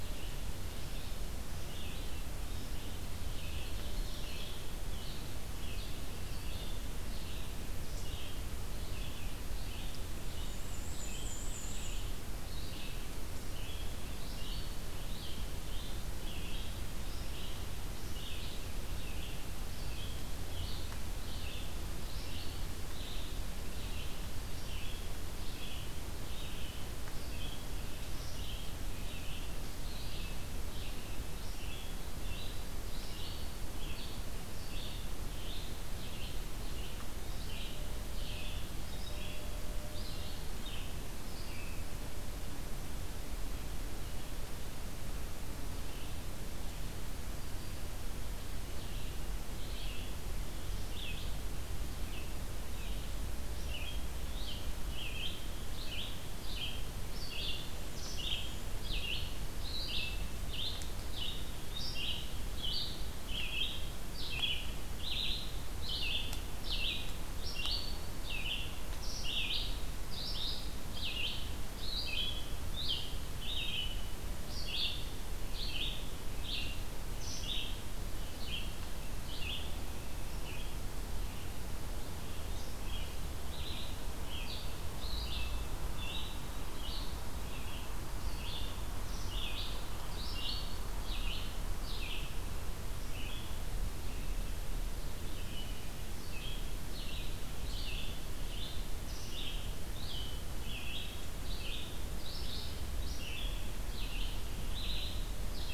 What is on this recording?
Red-eyed Vireo, Black-and-white Warbler